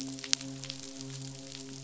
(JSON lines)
{"label": "biophony, midshipman", "recorder": "SoundTrap 500"}